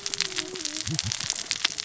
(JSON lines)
{"label": "biophony, cascading saw", "recorder": "SoundTrap 600 or HydroMoth"}